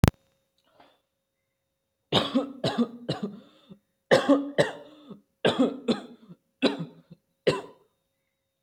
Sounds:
Cough